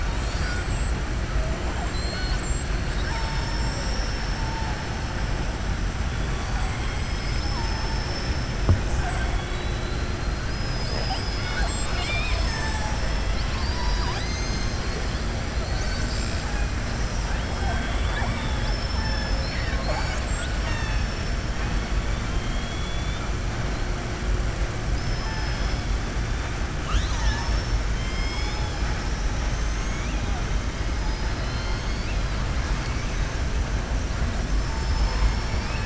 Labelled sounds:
1.8	2.4	killer whale, southern resident, 1.5 to 5.2 kHz
9.3	10.0	killer whale, southern resident, 3.3 to 4.3 kHz
22.3	23.2	killer whale, southern resident, 3.1 to 4.2 kHz
24.8	25.8	killer whale, southern resident, 0.87 to 5.6 kHz
26.7	28.8	killer whale, southern resident, 0.91 to 7.6 kHz
29.4	30.1	killer whale, southern resident, 5.5 to 6.9 kHz
30.9	32.4	killer whale, southern resident, 2.1 to 6.5 kHz
34.6	35.8	killer whale, southern resident, 4.3 to 6.1 kHz

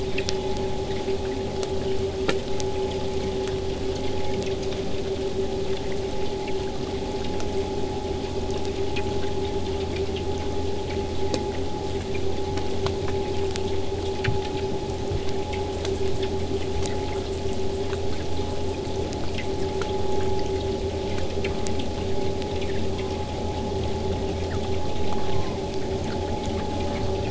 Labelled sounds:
3.0	8.0	vessel noise, 0 to 8.0 kHz
25.1	25.6	killer whale, southern resident, 0.15 to 1.6 kHz

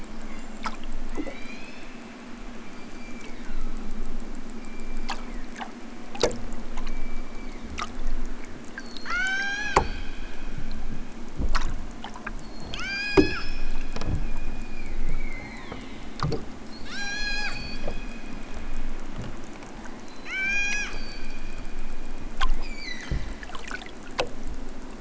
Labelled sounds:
0.0	2.0	killer whale, southern Alaska resident, 0.78 to 7.4 kHz
2.5	4.1	killer whale, southern Alaska resident, 0.73 to 5.1 kHz
4.5	5.8	killer whale, southern Alaska resident, 1.1 to 5.0 kHz
6.6	8.0	killer whale, southern Alaska resident, 1.0 to 5.1 kHz
8.7	10.0	killer whale, southern Alaska resident, 0.60 to 8.0 kHz
12.4	13.6	killer whale, southern Alaska resident, 0.55 to 8.0 kHz
14.2	16.1	killer whale, southern Alaska resident, 0.23 to 4.9 kHz
16.7	17.8	killer whale, southern Alaska resident, 0.32 to 8.0 kHz
19.5	21.3	killer whale, southern Alaska resident, 0.46 to 8.0 kHz
22.5	23.2	killer whale, southern Alaska resident, 0.87 to 8.0 kHz

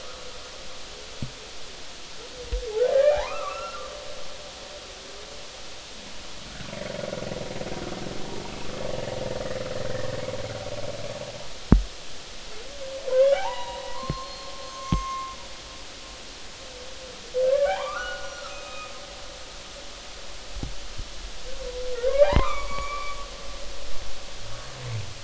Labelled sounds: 3.1	3.8	humpback whale, 0.80 to 2.8 kHz
13.1	15.3	humpback whale, 0.80 to 6.5 kHz
17.5	18.9	humpback whale, 0.80 to 5.8 kHz
22.0	23.2	humpback whale, 0.80 to 4.6 kHz

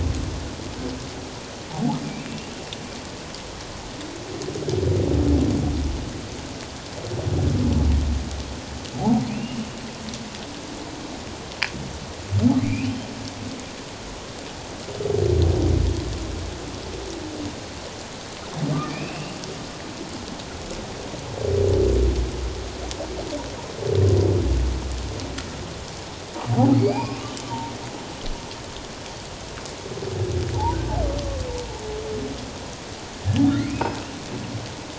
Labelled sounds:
1.7	2.3	humpback whale, 0.78 to 2.7 kHz
9.3	9.6	humpback whale, 2.3 to 2.9 kHz
12.6	12.9	humpback whale, 2.0 to 2.8 kHz
18.9	19.4	humpback whale, 2.2 to 2.9 kHz
26.7	27.4	humpback whale, 2.1 to 4.9 kHz
30.5	30.8	humpback whale, 0.78 to 1.0 kHz
33.6	34.0	humpback whale, 1.8 to 2.7 kHz

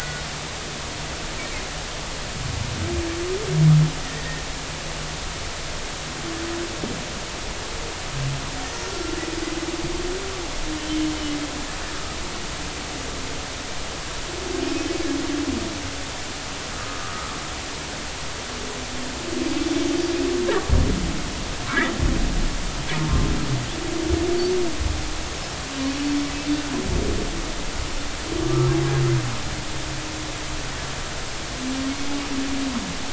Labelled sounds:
4.0	4.4	humpback whale, 1.8 to 2.0 kHz
8.8	9.1	humpback whale, 5.4 to 5.7 kHz
16.7	17.1	humpback whale, 1.2 to 1.3 kHz
21.7	21.9	humpback whale, 1.5 to 2.0 kHz

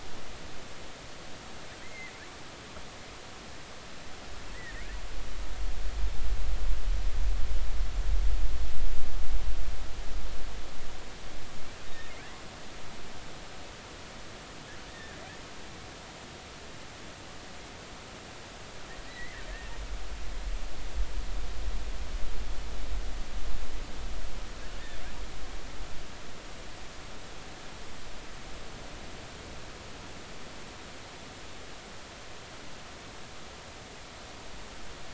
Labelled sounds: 1.8	2.1	killer whale, offshore, 1.9 to 2.2 kHz
11.9	12.1	killer whale, offshore, 3.6 to 3.8 kHz
14.9	15.2	killer whale, offshore, 1.6 to 1.9 kHz
19.1	19.4	killer whale, offshore, 1.9 to 2.1 kHz

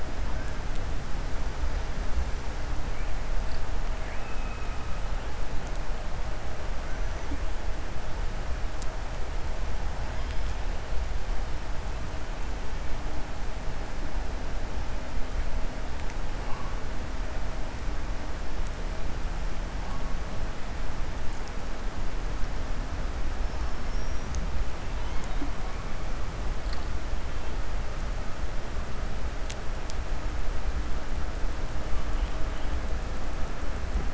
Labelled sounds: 3.9	4.8	killer whale, 1.6 to 2.8 kHz
23.8	24.3	killer whale, 5.4 to 6.6 kHz
24.9	25.4	killer whale, 2.1 to 4.0 kHz

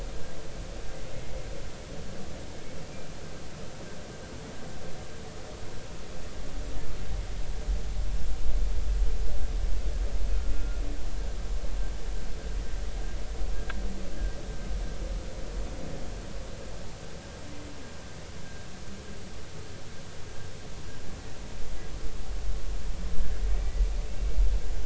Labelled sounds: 10.5	10.8	humpback whale, 1.38 to 1.44 kHz
24.0	24.4	humpback whale, 2.1 to 2.8 kHz

